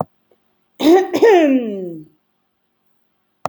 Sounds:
Throat clearing